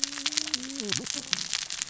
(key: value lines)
label: biophony, cascading saw
recorder: SoundTrap 600 or HydroMoth